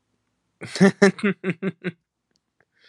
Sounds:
Laughter